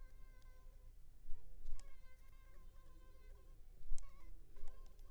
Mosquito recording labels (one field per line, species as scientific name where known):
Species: Culex pipiens complex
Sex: female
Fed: unfed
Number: one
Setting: cup